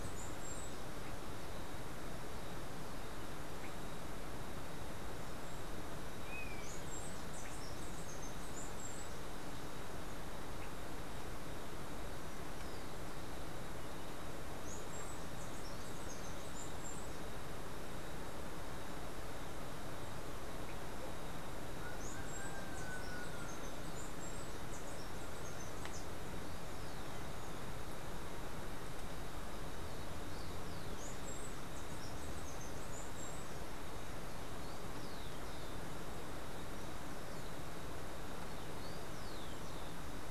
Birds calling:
Rufous-collared Sparrow (Zonotrichia capensis), Steely-vented Hummingbird (Saucerottia saucerottei)

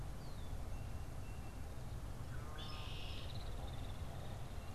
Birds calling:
Red-winged Blackbird (Agelaius phoeniceus)

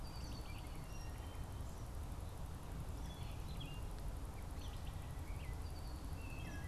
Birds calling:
Wood Thrush (Hylocichla mustelina), Red-winged Blackbird (Agelaius phoeniceus), Eastern Kingbird (Tyrannus tyrannus)

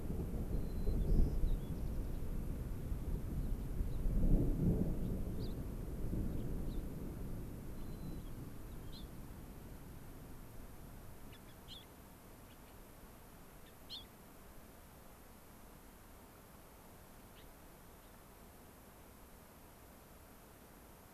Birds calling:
White-crowned Sparrow (Zonotrichia leucophrys), Gray-crowned Rosy-Finch (Leucosticte tephrocotis)

